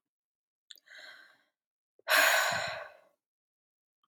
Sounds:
Sigh